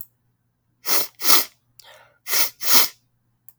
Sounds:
Sniff